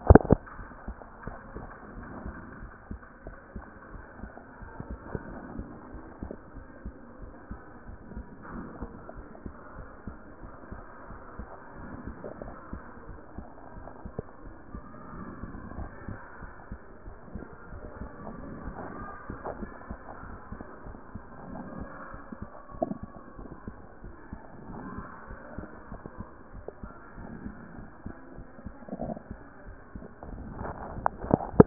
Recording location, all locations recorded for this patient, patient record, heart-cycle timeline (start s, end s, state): mitral valve (MV)
aortic valve (AV)+pulmonary valve (PV)+tricuspid valve (TV)+mitral valve (MV)
#Age: Child
#Sex: Male
#Height: 123.0 cm
#Weight: 20.5 kg
#Pregnancy status: False
#Murmur: Absent
#Murmur locations: nan
#Most audible location: nan
#Systolic murmur timing: nan
#Systolic murmur shape: nan
#Systolic murmur grading: nan
#Systolic murmur pitch: nan
#Systolic murmur quality: nan
#Diastolic murmur timing: nan
#Diastolic murmur shape: nan
#Diastolic murmur grading: nan
#Diastolic murmur pitch: nan
#Diastolic murmur quality: nan
#Outcome: Abnormal
#Campaign: 2014 screening campaign
0.00	0.58	unannotated
0.58	0.68	S1
0.68	0.86	systole
0.86	0.96	S2
0.96	1.26	diastole
1.26	1.36	S1
1.36	1.54	systole
1.54	1.64	S2
1.64	1.96	diastole
1.96	2.06	S1
2.06	2.24	systole
2.24	2.34	S2
2.34	2.60	diastole
2.60	2.72	S1
2.72	2.90	systole
2.90	3.00	S2
3.00	3.26	diastole
3.26	3.36	S1
3.36	3.54	systole
3.54	3.64	S2
3.64	3.92	diastole
3.92	4.04	S1
4.04	4.20	systole
4.20	4.30	S2
4.30	4.62	diastole
4.62	4.72	S1
4.72	4.88	systole
4.88	4.98	S2
4.98	5.32	diastole
5.32	5.42	S1
5.42	5.56	systole
5.56	5.64	S2
5.64	5.94	diastole
5.94	6.04	S1
6.04	6.22	systole
6.22	6.32	S2
6.32	6.56	diastole
6.56	31.66	unannotated